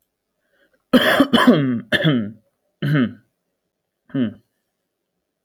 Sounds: Throat clearing